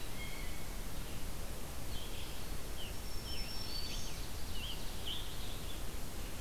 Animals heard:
Red-eyed Vireo (Vireo olivaceus), Blue Jay (Cyanocitta cristata), Ovenbird (Seiurus aurocapilla), Black-throated Green Warbler (Setophaga virens), Scarlet Tanager (Piranga olivacea)

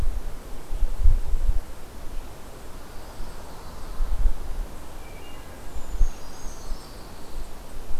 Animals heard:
Brown Creeper (Certhia americana), Wood Thrush (Hylocichla mustelina), Pine Warbler (Setophaga pinus)

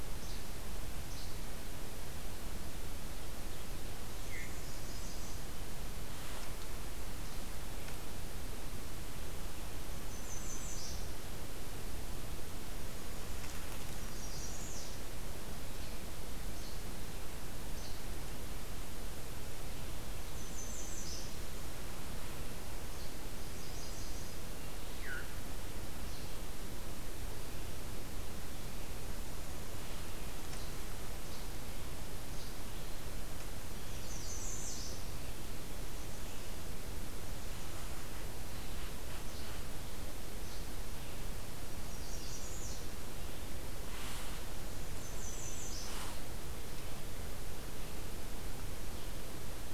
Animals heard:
Veery (Catharus fuscescens), Least Flycatcher (Empidonax minimus), American Redstart (Setophaga ruticilla)

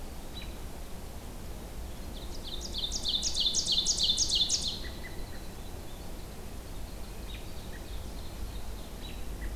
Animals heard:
Ovenbird (Seiurus aurocapilla), American Robin (Turdus migratorius), Winter Wren (Troglodytes hiemalis)

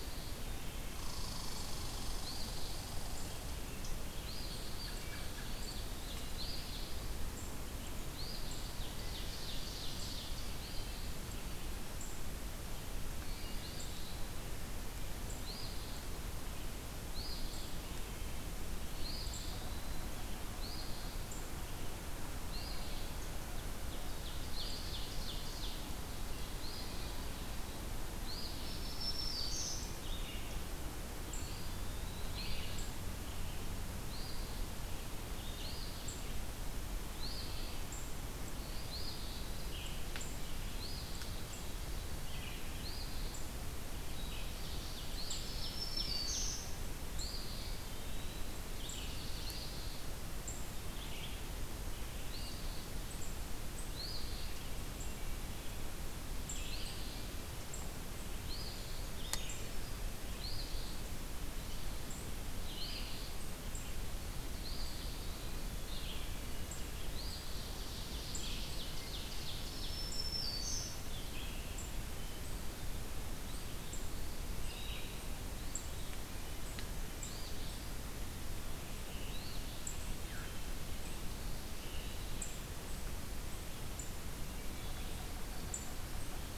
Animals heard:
Red Squirrel (Tamiasciurus hudsonicus), Red-eyed Vireo (Vireo olivaceus), American Robin (Turdus migratorius), Wood Thrush (Hylocichla mustelina), Black-throated Green Warbler (Setophaga virens), Eastern Phoebe (Sayornis phoebe), Veery (Catharus fuscescens), Ovenbird (Seiurus aurocapilla), Eastern Wood-Pewee (Contopus virens)

